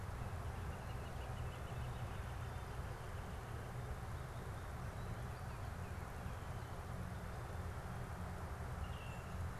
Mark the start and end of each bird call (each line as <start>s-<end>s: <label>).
0.0s-4.1s: Northern Flicker (Colaptes auratus)
8.7s-9.5s: Baltimore Oriole (Icterus galbula)